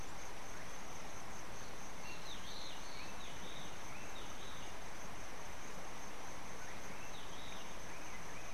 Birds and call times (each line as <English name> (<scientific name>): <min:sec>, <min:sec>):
White-browed Robin-Chat (Cossypha heuglini): 0:02.6